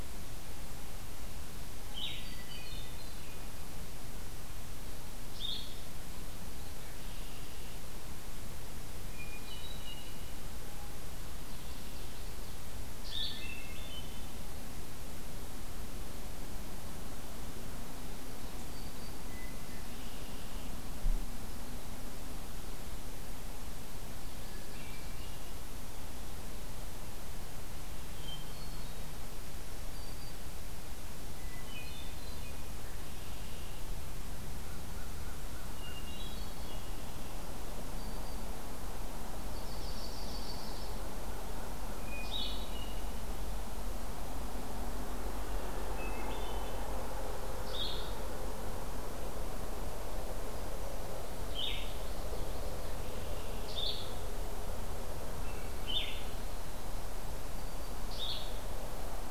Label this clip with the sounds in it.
Blue-headed Vireo, Hermit Thrush, Red-winged Blackbird, Common Yellowthroat, Black-throated Green Warbler, American Crow, Yellow-rumped Warbler